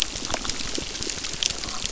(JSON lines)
{"label": "biophony, crackle", "recorder": "SoundTrap 600"}